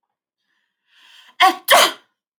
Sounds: Sneeze